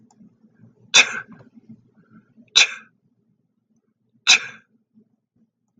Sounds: Sneeze